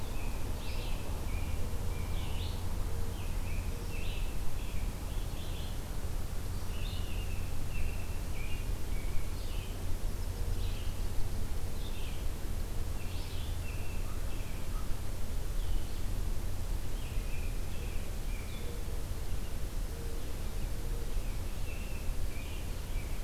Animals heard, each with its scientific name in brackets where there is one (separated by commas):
American Crow (Corvus brachyrhynchos), American Robin (Turdus migratorius), Red-eyed Vireo (Vireo olivaceus), Nashville Warbler (Leiothlypis ruficapilla)